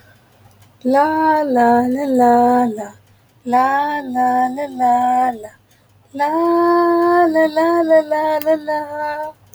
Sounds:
Sigh